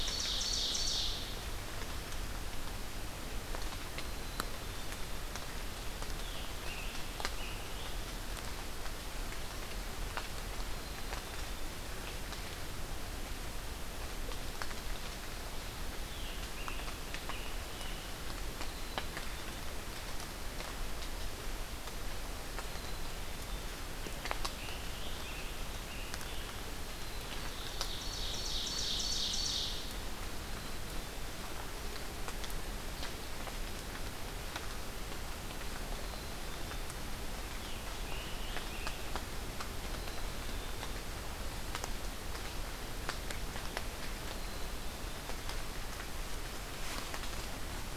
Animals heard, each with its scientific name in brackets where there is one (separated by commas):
Scarlet Tanager (Piranga olivacea), Black-capped Chickadee (Poecile atricapillus), Ovenbird (Seiurus aurocapilla)